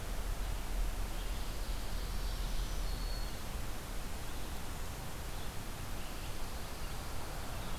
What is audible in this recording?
Black-throated Green Warbler